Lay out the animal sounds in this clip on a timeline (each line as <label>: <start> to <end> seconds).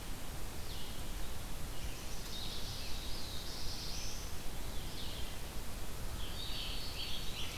Red-eyed Vireo (Vireo olivaceus): 0.0 to 7.6 seconds
Black-throated Blue Warbler (Setophaga caerulescens): 2.4 to 4.4 seconds
Scarlet Tanager (Piranga olivacea): 5.5 to 7.6 seconds
Black-throated Green Warbler (Setophaga virens): 6.0 to 7.6 seconds